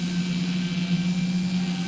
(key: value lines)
label: anthrophony, boat engine
recorder: SoundTrap 500